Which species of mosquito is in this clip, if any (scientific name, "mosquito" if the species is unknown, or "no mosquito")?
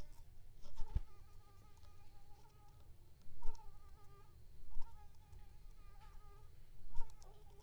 Anopheles coustani